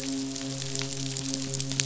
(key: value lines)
label: biophony, midshipman
recorder: SoundTrap 500